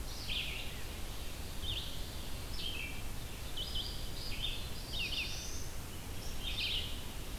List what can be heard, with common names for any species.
Red-eyed Vireo, Black-throated Blue Warbler